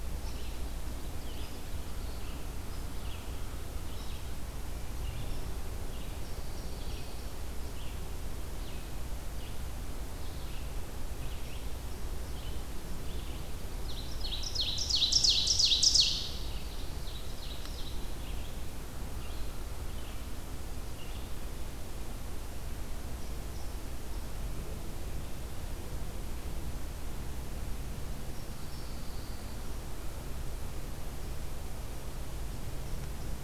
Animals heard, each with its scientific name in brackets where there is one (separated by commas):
Red-eyed Vireo (Vireo olivaceus), unknown mammal, Pine Warbler (Setophaga pinus), Ovenbird (Seiurus aurocapilla)